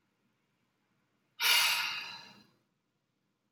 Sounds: Sigh